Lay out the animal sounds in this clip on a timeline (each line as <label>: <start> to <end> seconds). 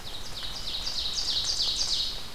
Ovenbird (Seiurus aurocapilla): 0.0 to 2.3 seconds
Red-eyed Vireo (Vireo olivaceus): 0.0 to 2.3 seconds